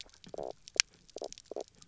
{"label": "biophony, knock croak", "recorder": "SoundTrap 300"}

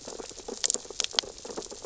{"label": "biophony, sea urchins (Echinidae)", "recorder": "SoundTrap 600 or HydroMoth"}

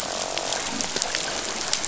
{"label": "biophony, croak", "recorder": "SoundTrap 500"}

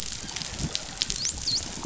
{"label": "biophony, dolphin", "recorder": "SoundTrap 500"}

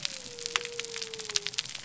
{"label": "biophony", "recorder": "SoundTrap 300"}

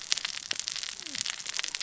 {"label": "biophony, cascading saw", "recorder": "SoundTrap 600 or HydroMoth"}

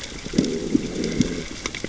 {"label": "biophony, growl", "recorder": "SoundTrap 600 or HydroMoth"}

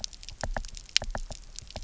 {"label": "biophony, knock", "recorder": "SoundTrap 300"}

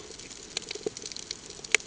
{"label": "ambient", "recorder": "HydroMoth"}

